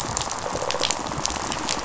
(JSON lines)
{"label": "biophony, rattle response", "recorder": "SoundTrap 500"}